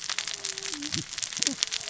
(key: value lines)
label: biophony, cascading saw
recorder: SoundTrap 600 or HydroMoth